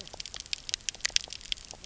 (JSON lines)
{"label": "biophony, knock croak", "recorder": "SoundTrap 300"}